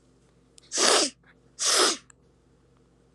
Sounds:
Sniff